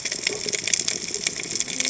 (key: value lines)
label: biophony, cascading saw
recorder: HydroMoth